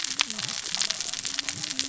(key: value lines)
label: biophony, cascading saw
recorder: SoundTrap 600 or HydroMoth